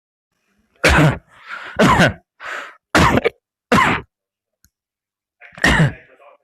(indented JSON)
{
  "expert_labels": [
    {
      "quality": "ok",
      "cough_type": "dry",
      "dyspnea": false,
      "wheezing": false,
      "stridor": false,
      "choking": false,
      "congestion": false,
      "nothing": true,
      "diagnosis": "COVID-19",
      "severity": "mild"
    }
  ],
  "age": 18,
  "gender": "female",
  "respiratory_condition": false,
  "fever_muscle_pain": false,
  "status": "COVID-19"
}